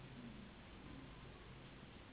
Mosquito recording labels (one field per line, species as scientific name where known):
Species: Anopheles gambiae s.s.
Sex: female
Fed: unfed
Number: one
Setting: insect culture